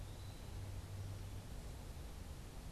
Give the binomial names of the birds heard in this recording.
Contopus virens